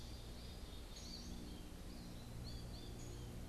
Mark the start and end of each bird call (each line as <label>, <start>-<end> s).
American Goldfinch (Spinus tristis), 0.0-3.5 s
Black-capped Chickadee (Poecile atricapillus), 0.0-3.5 s
Eastern Wood-Pewee (Contopus virens), 0.0-3.5 s